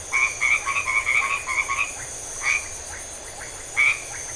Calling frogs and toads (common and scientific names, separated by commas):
white-edged tree frog (Boana albomarginata), Iporanga white-lipped frog (Leptodactylus notoaktites)